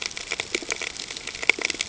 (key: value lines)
label: ambient
recorder: HydroMoth